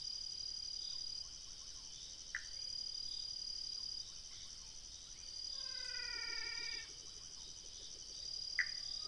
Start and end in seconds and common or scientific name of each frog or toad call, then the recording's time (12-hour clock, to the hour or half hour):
2.2	2.8	Pithecopus azureus
5.6	7.1	menwig frog
8.6	9.0	Pithecopus azureus
3:30am